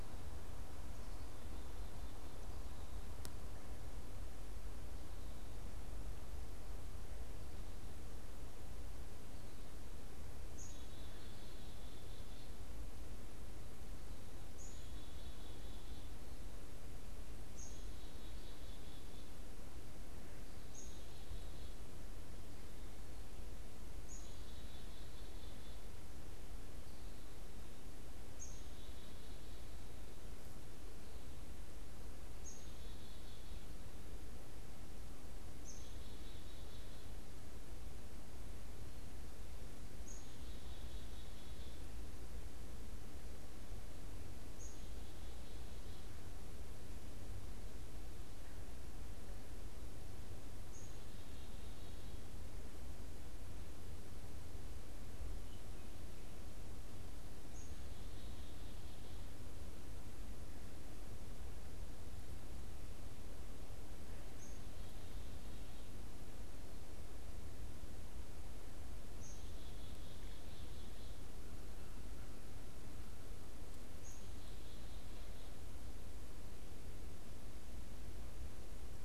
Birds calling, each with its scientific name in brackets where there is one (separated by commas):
Black-capped Chickadee (Poecile atricapillus)